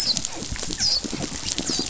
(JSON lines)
{"label": "biophony, dolphin", "recorder": "SoundTrap 500"}